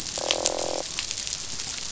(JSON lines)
{"label": "biophony, croak", "recorder": "SoundTrap 500"}